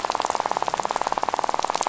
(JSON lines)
{"label": "biophony, rattle", "recorder": "SoundTrap 500"}